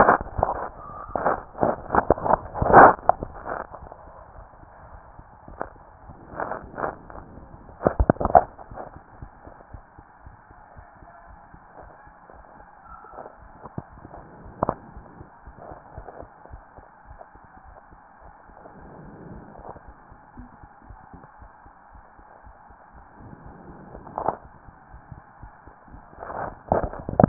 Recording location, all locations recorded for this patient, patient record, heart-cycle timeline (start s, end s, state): mitral valve (MV)
aortic valve (AV)+pulmonary valve (PV)+tricuspid valve (TV)+mitral valve (MV)
#Age: Child
#Sex: Male
#Height: 133.0 cm
#Weight: 42.6 kg
#Pregnancy status: False
#Murmur: Unknown
#Murmur locations: nan
#Most audible location: nan
#Systolic murmur timing: nan
#Systolic murmur shape: nan
#Systolic murmur grading: nan
#Systolic murmur pitch: nan
#Systolic murmur quality: nan
#Diastolic murmur timing: nan
#Diastolic murmur shape: nan
#Diastolic murmur grading: nan
#Diastolic murmur pitch: nan
#Diastolic murmur quality: nan
#Outcome: Normal
#Campaign: 2015 screening campaign
0.00	15.94	unannotated
15.94	16.08	S1
16.08	16.19	systole
16.19	16.30	S2
16.30	16.48	diastole
16.48	16.62	S1
16.62	16.75	systole
16.75	16.88	S2
16.88	17.06	diastole
17.06	17.20	S1
17.20	17.40	systole
17.40	17.50	S2
17.50	17.66	diastole
17.66	17.76	S1
17.76	17.91	systole
17.91	17.99	S2
17.99	18.24	diastole
18.24	18.34	S1
18.34	18.48	systole
18.48	18.58	S2
18.58	18.76	diastole
18.76	18.88	S1
18.88	19.00	systole
19.00	19.12	S2
19.12	19.26	diastole
19.26	19.42	S1
19.42	19.55	systole
19.55	19.66	S2
19.66	19.84	diastole
19.84	19.94	S1
19.94	20.08	systole
20.08	20.20	S2
20.20	20.36	diastole
20.36	20.50	S1
20.50	20.60	systole
20.60	20.70	S2
20.70	20.86	diastole
20.86	20.98	S1
20.98	21.12	systole
21.12	21.21	S2
21.21	21.40	diastole
21.40	21.50	S1
21.50	21.64	systole
21.64	21.76	S2
21.76	21.94	diastole
21.94	22.04	S1
22.04	22.18	systole
22.18	22.28	S2
22.28	22.43	diastole
22.43	22.56	S1
22.56	22.68	systole
22.68	22.78	S2
22.78	22.94	diastole
22.94	23.06	S1
23.06	23.20	systole
23.20	23.30	S2
23.30	23.44	diastole
23.44	23.56	S1
23.56	23.68	systole
23.68	23.78	S2
23.78	23.92	diastole
23.92	24.04	S1
24.04	27.28	unannotated